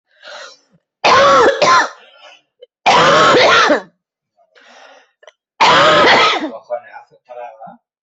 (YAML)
expert_labels:
- quality: ok
  cough_type: dry
  dyspnea: false
  wheezing: false
  stridor: false
  choking: false
  congestion: false
  nothing: false
  diagnosis: obstructive lung disease
  severity: unknown
age: 43
gender: female
respiratory_condition: true
fever_muscle_pain: false
status: symptomatic